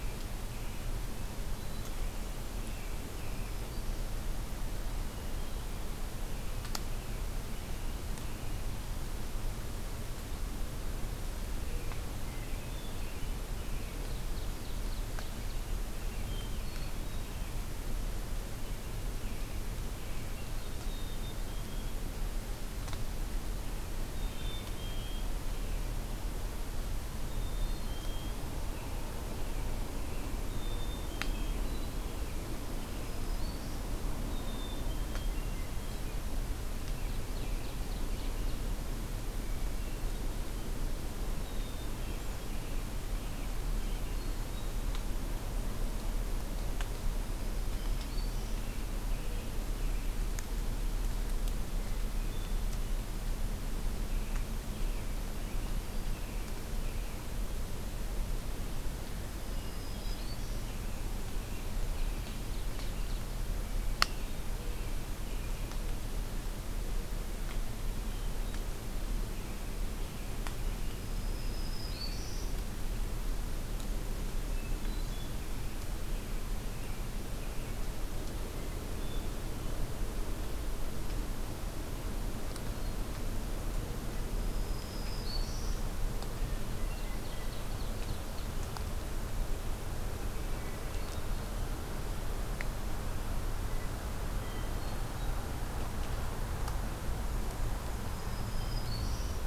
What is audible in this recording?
American Robin, Hermit Thrush, Black-throated Green Warbler, Ovenbird, Black-capped Chickadee, Blue Jay